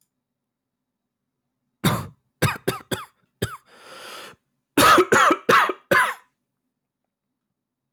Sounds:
Cough